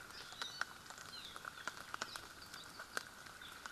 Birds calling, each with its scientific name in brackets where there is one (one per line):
Iiwi (Drepanis coccinea)